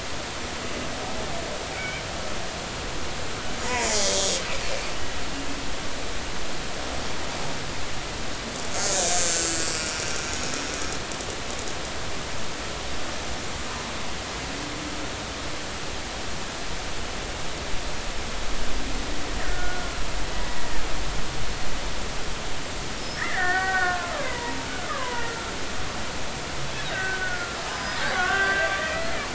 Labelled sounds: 1.8	2.0	killer whale, Bigg's (transient), 1.4 to 2.4 kHz
3.8	4.3	killer whale, Bigg's (transient), 3.2 to 5.0 kHz
8.7	9.8	killer whale, Bigg's (transient), 1.4 to 6.8 kHz
19.4	19.9	killer whale, Bigg's (transient), 1.4 to 2.0 kHz
23.0	25.5	killer whale, Bigg's (transient), 0.90 to 5.6 kHz
26.9	29.2	killer whale, Bigg's (transient), 1.1 to 5.1 kHz

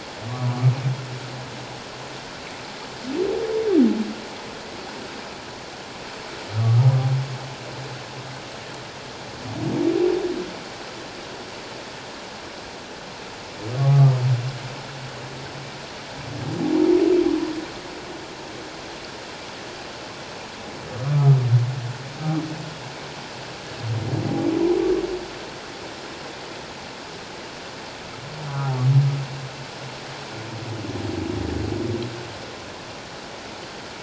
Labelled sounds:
6.6	6.9	humpback whale, 1.1 to 1.3 kHz
13.8	14.1	humpback whale, 1.1 to 1.2 kHz
21.0	21.3	humpback whale, 1.1 to 1.3 kHz
28.5	28.8	humpback whale, 0.78 to 1.0 kHz

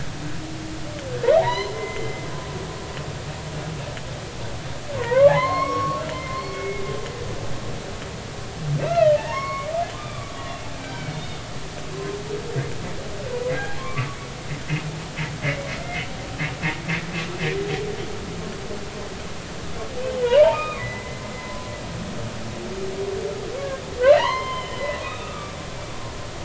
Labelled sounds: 1.4	2.2	humpback whale, 0.80 to 4.2 kHz
5.0	6.8	humpback whale, 0.86 to 5.6 kHz
8.8	11.4	humpback whale, 0.83 to 4.4 kHz
13.8	14.1	humpback whale, 0.99 to 1.2 kHz
15.8	16.1	humpback whale, 2.0 to 2.2 kHz
20.2	21.7	humpback whale, 0.96 to 3.8 kHz
24.0	25.6	humpback whale, 0.86 to 5.1 kHz

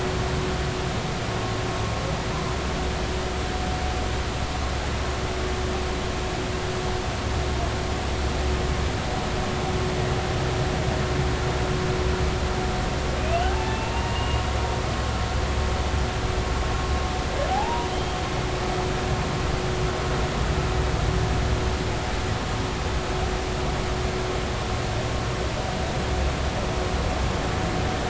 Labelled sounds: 13.2	14.4	humpback whale, 0.80 to 3.1 kHz
17.5	18.2	humpback whale, 0.80 to 3.3 kHz

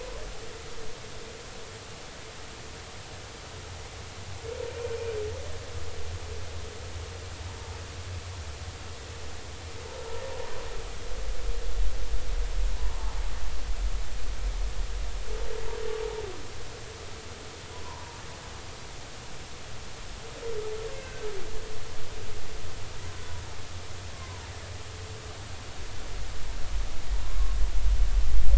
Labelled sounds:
17.8	18.2	humpback whale, 0.86 to 1.1 kHz
21.0	21.3	humpback whale, 1.5 to 1.6 kHz
24.1	24.5	humpback whale, 0.86 to 1.1 kHz

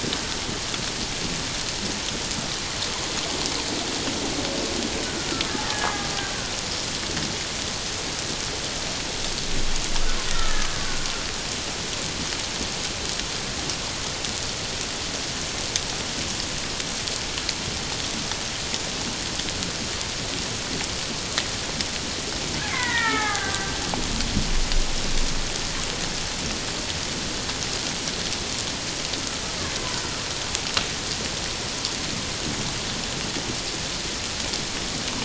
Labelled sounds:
5.6	6.1	killer whale, Bigg's (transient), 0.84 to 1.9 kHz
10.3	10.7	killer whale, Bigg's (transient), 1.2 to 1.9 kHz
22.7	23.7	killer whale, Bigg's (transient), 0.78 to 2.4 kHz

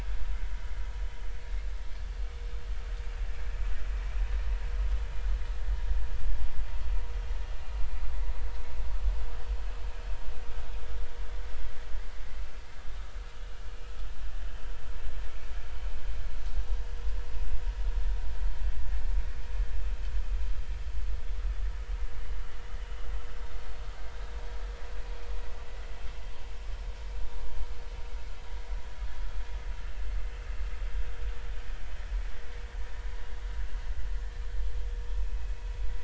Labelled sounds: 14.5	15.5	vessel noise, 2.1 to 3.2 kHz
35.2	35.6	vessel noise, 2.4 to 2.7 kHz

